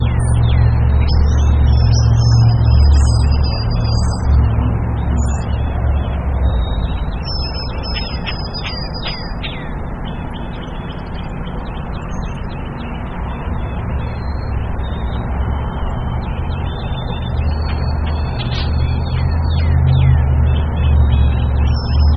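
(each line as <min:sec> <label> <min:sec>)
0:00.0 A bird chirping a high-pitched, faint song. 0:04.6
0:07.1 A bird chirping a high-pitched, faint song. 0:09.6
0:17.3 Birds chirping faintly in a high-pitched rhythm. 0:19.8
0:21.7 A bird chirping a high-pitched, faint song. 0:22.2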